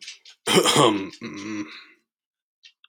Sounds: Throat clearing